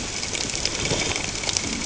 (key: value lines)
label: ambient
recorder: HydroMoth